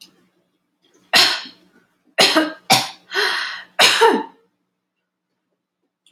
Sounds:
Cough